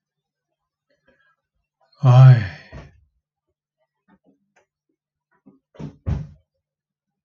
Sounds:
Sigh